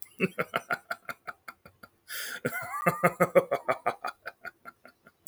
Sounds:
Laughter